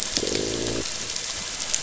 {"label": "biophony", "recorder": "SoundTrap 500"}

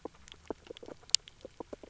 {"label": "biophony, grazing", "recorder": "SoundTrap 300"}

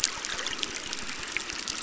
{"label": "biophony, crackle", "recorder": "SoundTrap 600"}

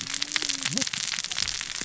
{"label": "biophony, cascading saw", "recorder": "SoundTrap 600 or HydroMoth"}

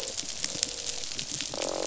{"label": "biophony, croak", "recorder": "SoundTrap 500"}
{"label": "biophony", "recorder": "SoundTrap 500"}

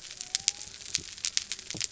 {"label": "biophony", "recorder": "SoundTrap 300"}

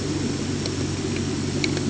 {"label": "anthrophony, boat engine", "recorder": "HydroMoth"}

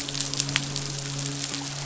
{"label": "biophony, midshipman", "recorder": "SoundTrap 500"}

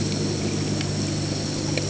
{"label": "anthrophony, boat engine", "recorder": "HydroMoth"}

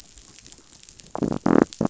{"label": "biophony", "recorder": "SoundTrap 500"}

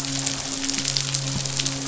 {"label": "biophony, midshipman", "recorder": "SoundTrap 500"}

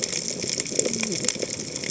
{"label": "biophony, cascading saw", "recorder": "HydroMoth"}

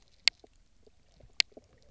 {"label": "biophony, knock croak", "recorder": "SoundTrap 300"}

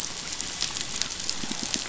{"label": "biophony", "recorder": "SoundTrap 500"}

